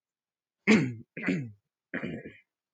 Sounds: Throat clearing